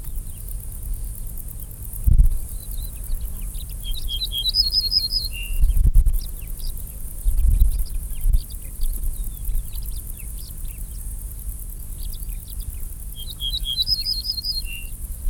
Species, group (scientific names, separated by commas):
Decticus verrucivorus, Orthoptera